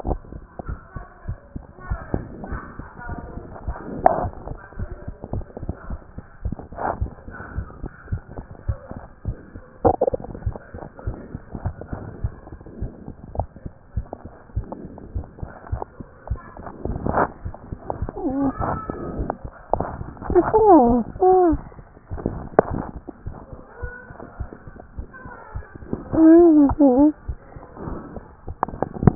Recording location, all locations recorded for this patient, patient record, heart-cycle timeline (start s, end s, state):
tricuspid valve (TV)
aortic valve (AV)+pulmonary valve (PV)+tricuspid valve (TV)+mitral valve (MV)
#Age: Child
#Sex: Male
#Height: 122.0 cm
#Weight: 24.2 kg
#Pregnancy status: False
#Murmur: Absent
#Murmur locations: nan
#Most audible location: nan
#Systolic murmur timing: nan
#Systolic murmur shape: nan
#Systolic murmur grading: nan
#Systolic murmur pitch: nan
#Systolic murmur quality: nan
#Diastolic murmur timing: nan
#Diastolic murmur shape: nan
#Diastolic murmur grading: nan
#Diastolic murmur pitch: nan
#Diastolic murmur quality: nan
#Outcome: Abnormal
#Campaign: 2014 screening campaign
0.00	0.68	unannotated
0.68	0.78	S1
0.78	0.96	systole
0.96	1.04	S2
1.04	1.28	diastole
1.28	1.38	S1
1.38	1.54	systole
1.54	1.62	S2
1.62	1.88	diastole
1.88	1.99	S1
1.99	2.14	systole
2.14	2.24	S2
2.24	2.50	diastole
2.50	2.60	S1
2.60	2.78	systole
2.78	2.88	S2
2.88	3.08	diastole
3.08	3.18	S1
3.18	3.34	systole
3.34	3.44	S2
3.44	3.66	diastole
3.66	3.76	S1
3.76	3.92	systole
3.92	4.02	S2
4.02	4.22	diastole
4.22	29.15	unannotated